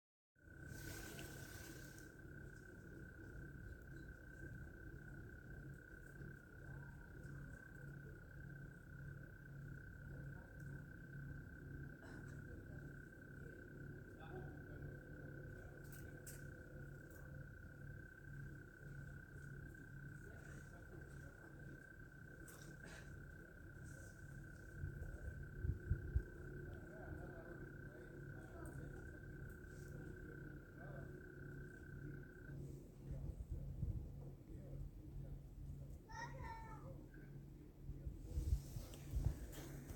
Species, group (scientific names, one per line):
Gryllotalpa gryllotalpa
Orthoptera